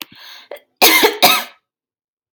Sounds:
Cough